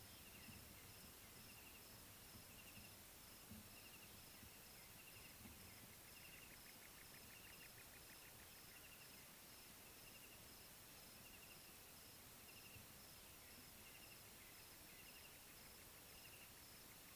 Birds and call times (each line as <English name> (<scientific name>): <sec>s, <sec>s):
Slender-tailed Nightjar (Caprimulgus clarus): 7.2s